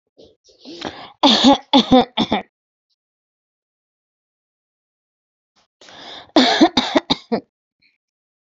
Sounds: Cough